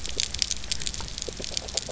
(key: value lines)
label: biophony, grazing
recorder: SoundTrap 300